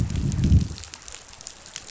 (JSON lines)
{"label": "biophony, growl", "recorder": "SoundTrap 500"}